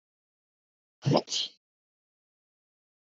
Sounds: Sneeze